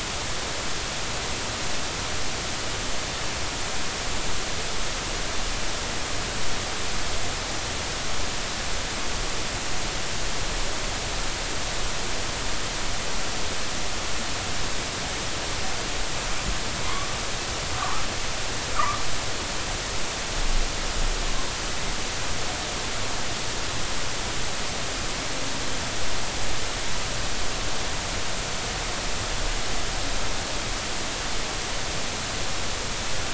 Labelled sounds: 17.8	19.0	humpback whale, 0.93 to 1.4 kHz

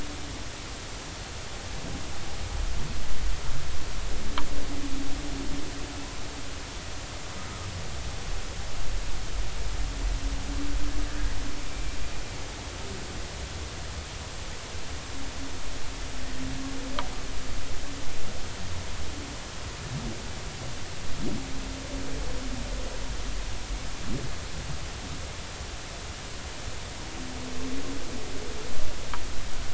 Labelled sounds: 11.7	12.0	humpback whale, 2.3 to 2.4 kHz

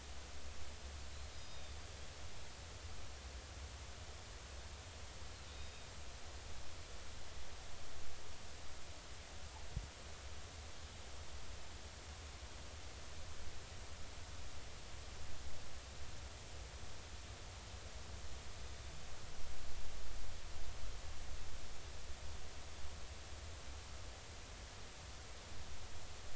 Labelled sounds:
1.3	1.8	Pacific white-sided dolphin, 3.5 to 5.0 kHz
5.5	5.9	Pacific white-sided dolphin, 3.6 to 3.8 kHz

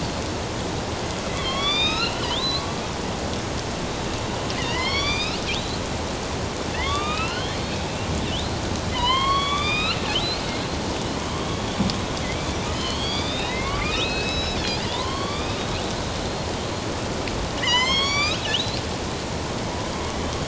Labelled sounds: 1.3	2.7	killer whale, northern resident, A clan, AB subclan, 1.0 to 6.6 kHz
4.6	5.8	killer whale, northern resident, A clan, AB subclan, 1.1 to 6.0 kHz
6.7	7.8	killer whale, northern resident, A clan, AB subclan, 1.0 to 5.3 kHz
8.3	10.0	killer whale, northern resident, A clan, AB subclan, 0.91 to 5.2 kHz
11.3	11.9	killer whale, northern resident, A clan, AB subclan, 3.1 to 3.6 kHz
12.6	15.7	killer whale, northern resident, A clan, AB subclan, 0.91 to 5.3 kHz
17.5	18.6	killer whale, northern resident, A clan, AB subclan, 0.91 to 7.8 kHz

